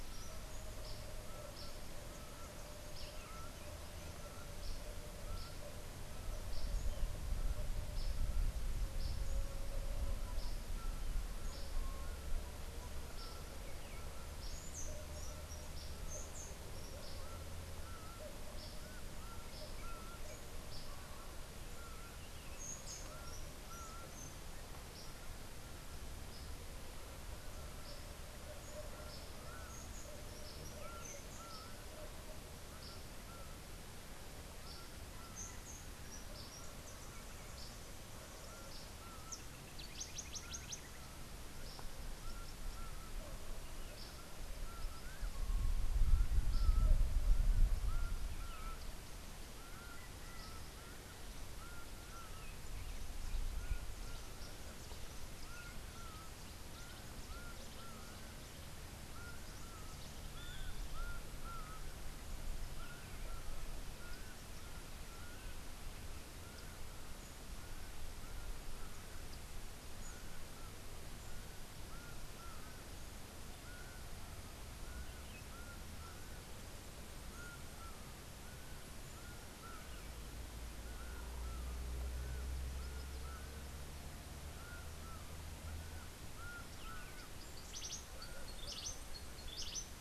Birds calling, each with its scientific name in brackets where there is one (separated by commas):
House Wren (Troglodytes aedon), Rufous-tailed Hummingbird (Amazilia tzacatl), Cabanis's Wren (Cantorchilus modestus), Yellow Warbler (Setophaga petechia), Laughing Falcon (Herpetotheres cachinnans)